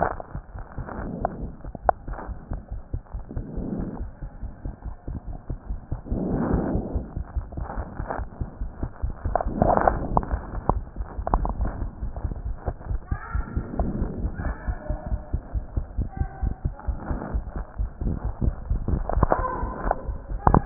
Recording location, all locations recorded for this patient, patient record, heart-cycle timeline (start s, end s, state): pulmonary valve (PV)
aortic valve (AV)+pulmonary valve (PV)+tricuspid valve (TV)+mitral valve (MV)
#Age: Child
#Sex: Male
#Height: 130.0 cm
#Weight: 27.3 kg
#Pregnancy status: False
#Murmur: Absent
#Murmur locations: nan
#Most audible location: nan
#Systolic murmur timing: nan
#Systolic murmur shape: nan
#Systolic murmur grading: nan
#Systolic murmur pitch: nan
#Systolic murmur quality: nan
#Diastolic murmur timing: nan
#Diastolic murmur shape: nan
#Diastolic murmur grading: nan
#Diastolic murmur pitch: nan
#Diastolic murmur quality: nan
#Outcome: Normal
#Campaign: 2015 screening campaign
0.00	12.82	unannotated
12.82	12.88	diastole
12.88	13.00	S1
13.00	13.10	systole
13.10	13.18	S2
13.18	13.34	diastole
13.34	13.44	S1
13.44	13.55	systole
13.55	13.64	S2
13.64	13.77	diastole
13.77	13.87	S1
13.87	14.00	systole
14.00	14.07	S2
14.07	14.22	diastole
14.22	14.31	S1
14.31	14.43	systole
14.43	14.54	S2
14.54	14.67	diastole
14.67	14.76	S1
14.76	14.88	systole
14.88	14.98	S2
14.98	15.11	diastole
15.11	15.18	S1
15.18	15.32	systole
15.32	15.40	S2
15.40	15.54	diastole
15.54	15.62	S1
15.62	15.75	systole
15.75	15.84	S2
15.84	15.97	diastole
15.97	16.08	S1
16.08	16.20	systole
16.20	16.29	S2
16.29	16.42	diastole
16.42	16.52	S1
16.52	16.64	systole
16.64	16.74	S2
16.74	16.86	diastole
16.86	16.96	S1
16.96	17.09	systole
17.09	17.17	S2
17.17	17.30	diastole
17.30	17.44	S1
17.44	17.54	systole
17.54	17.66	S2
17.66	17.79	diastole
17.79	17.89	S1
17.89	18.01	systole
18.01	18.08	S2
18.08	18.25	diastole
18.25	18.32	S1
18.32	18.42	systole
18.42	18.51	S2
18.51	18.70	diastole
18.70	18.81	S1
18.81	18.92	systole
18.92	19.03	S2
19.03	19.16	diastole
19.16	19.22	S1
19.22	19.37	systole
19.37	19.44	S2
19.44	19.62	diastole
19.62	19.74	S1
19.74	19.84	systole
19.84	19.96	S2
19.96	20.07	diastole
20.07	20.19	S1
20.19	20.30	systole
20.30	20.42	S2
20.42	20.64	diastole
20.64	20.66	unannotated